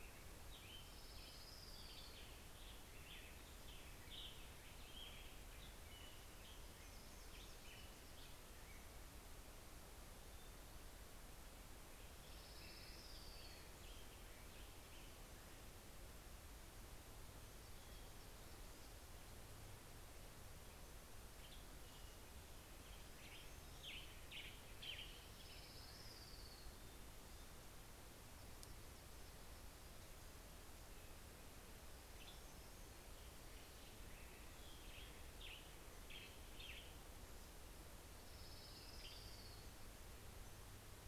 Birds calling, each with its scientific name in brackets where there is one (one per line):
Orange-crowned Warbler (Leiothlypis celata)
Hermit Warbler (Setophaga occidentalis)
Western Tanager (Piranga ludoviciana)